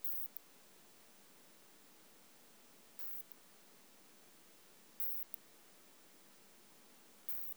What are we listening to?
Isophya modestior, an orthopteran